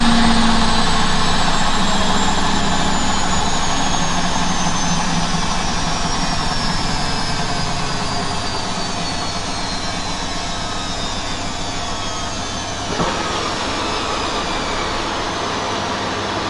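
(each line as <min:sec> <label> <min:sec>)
0:00.7 The washing machine is in its final cycle. 0:15.7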